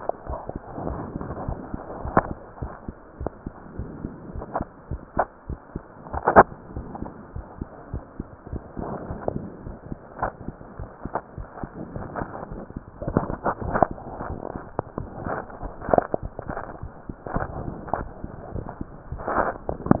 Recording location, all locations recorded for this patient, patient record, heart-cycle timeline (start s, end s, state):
mitral valve (MV)
aortic valve (AV)+pulmonary valve (PV)+tricuspid valve (TV)+mitral valve (MV)
#Age: Child
#Sex: Male
#Height: 133.0 cm
#Weight: 33.1 kg
#Pregnancy status: False
#Murmur: Absent
#Murmur locations: nan
#Most audible location: nan
#Systolic murmur timing: nan
#Systolic murmur shape: nan
#Systolic murmur grading: nan
#Systolic murmur pitch: nan
#Systolic murmur quality: nan
#Diastolic murmur timing: nan
#Diastolic murmur shape: nan
#Diastolic murmur grading: nan
#Diastolic murmur pitch: nan
#Diastolic murmur quality: nan
#Outcome: Normal
#Campaign: 2015 screening campaign
0.00	0.26	diastole
0.26	0.38	S1
0.38	0.48	systole
0.48	0.62	S2
0.62	0.82	diastole
0.82	1.00	S1
1.00	1.12	systole
1.12	1.24	S2
1.24	1.44	diastole
1.44	1.58	S1
1.58	1.70	systole
1.70	1.80	S2
1.80	2.00	diastole
2.00	2.11	S1
2.11	2.27	systole
2.27	2.37	S2
2.37	2.58	diastole
2.58	2.72	S1
2.72	2.84	systole
2.84	2.94	S2
2.94	3.18	diastole
3.18	3.30	S1
3.30	3.42	systole
3.42	3.54	S2
3.54	3.76	diastole
3.76	3.90	S1
3.90	4.02	systole
4.02	4.12	S2
4.12	4.30	diastole
4.30	4.44	S1
4.44	4.54	systole
4.54	4.68	S2
4.68	4.90	diastole
4.90	5.02	S1
5.02	5.14	systole
5.14	5.26	S2
5.26	5.48	diastole
5.48	5.58	S1
5.58	5.72	systole
5.72	5.82	S2
5.82	6.08	diastole
6.08	6.22	S1
6.22	6.34	systole
6.34	6.48	S2
6.48	6.74	diastole
6.74	6.86	S1
6.86	6.98	systole
6.98	7.12	S2
7.12	7.34	diastole
7.34	7.46	S1
7.46	7.58	systole
7.58	7.68	S2
7.68	7.92	diastole
7.92	8.04	S1
8.04	8.16	systole
8.16	8.26	S2
8.26	8.52	diastole
8.52	8.64	S1
8.64	8.76	systole
8.76	8.86	S2
8.86	9.08	diastole
9.08	9.22	S1
9.22	9.32	systole
9.32	9.46	S2
9.46	9.65	diastole
9.65	9.76	S1
9.76	9.88	systole
9.88	9.98	S2
9.98	10.22	diastole